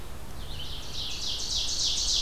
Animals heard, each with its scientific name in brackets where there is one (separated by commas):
Ovenbird (Seiurus aurocapilla), Red-eyed Vireo (Vireo olivaceus)